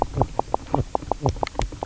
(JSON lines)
{"label": "biophony, knock croak", "recorder": "SoundTrap 300"}